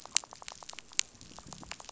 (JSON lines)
{"label": "biophony, rattle", "recorder": "SoundTrap 500"}